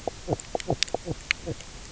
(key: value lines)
label: biophony, knock croak
recorder: SoundTrap 300